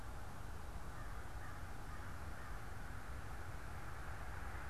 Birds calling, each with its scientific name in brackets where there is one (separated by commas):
American Crow (Corvus brachyrhynchos)